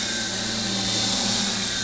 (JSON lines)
{"label": "anthrophony, boat engine", "recorder": "SoundTrap 500"}